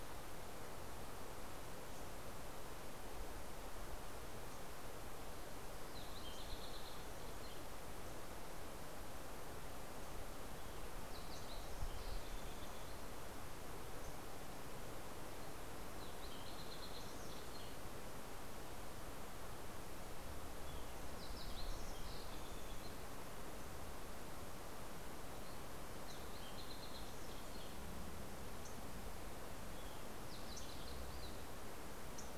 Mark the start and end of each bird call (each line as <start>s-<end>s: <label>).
4.9s-8.2s: Fox Sparrow (Passerella iliaca)
10.5s-13.7s: Fox Sparrow (Passerella iliaca)
15.8s-18.6s: Fox Sparrow (Passerella iliaca)
20.1s-23.7s: Fox Sparrow (Passerella iliaca)
25.0s-29.1s: Fox Sparrow (Passerella iliaca)
25.0s-32.4s: MacGillivray's Warbler (Geothlypis tolmiei)
29.5s-32.0s: Fox Sparrow (Passerella iliaca)